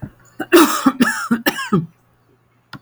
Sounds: Cough